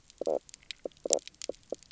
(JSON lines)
{"label": "biophony, knock croak", "recorder": "SoundTrap 300"}